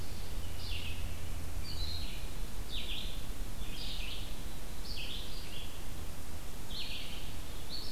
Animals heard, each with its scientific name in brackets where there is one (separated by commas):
Red-eyed Vireo (Vireo olivaceus)